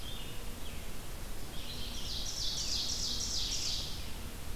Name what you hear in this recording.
Red-eyed Vireo, Ovenbird